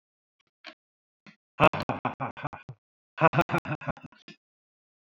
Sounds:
Laughter